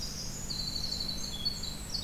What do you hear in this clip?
Winter Wren, Golden-crowned Kinglet